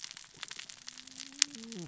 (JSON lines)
{"label": "biophony, cascading saw", "recorder": "SoundTrap 600 or HydroMoth"}